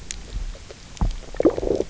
{"label": "biophony, low growl", "recorder": "SoundTrap 300"}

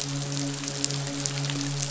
{"label": "biophony, midshipman", "recorder": "SoundTrap 500"}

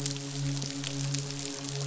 {"label": "biophony, midshipman", "recorder": "SoundTrap 500"}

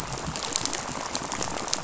{"label": "biophony, rattle", "recorder": "SoundTrap 500"}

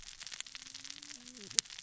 {"label": "biophony, cascading saw", "recorder": "SoundTrap 600 or HydroMoth"}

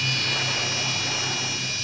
{"label": "anthrophony, boat engine", "recorder": "SoundTrap 500"}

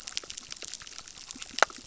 {"label": "biophony, crackle", "recorder": "SoundTrap 600"}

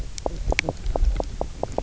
{"label": "biophony, knock croak", "recorder": "SoundTrap 300"}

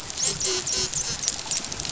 {"label": "biophony, dolphin", "recorder": "SoundTrap 500"}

